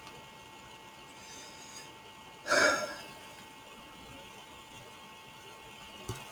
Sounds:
Sigh